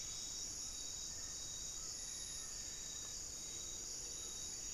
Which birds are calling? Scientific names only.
Trogon ramonianus, Formicarius analis